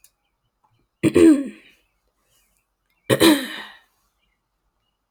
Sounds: Throat clearing